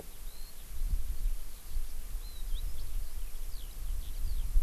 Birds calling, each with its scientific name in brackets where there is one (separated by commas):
Eurasian Skylark (Alauda arvensis)